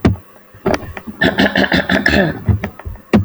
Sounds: Throat clearing